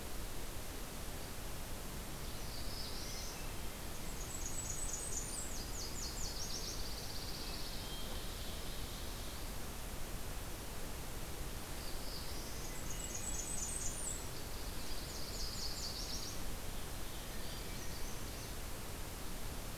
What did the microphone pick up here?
Black-throated Blue Warbler, Hermit Thrush, Blackburnian Warbler, Nashville Warbler, Pine Warbler, Ovenbird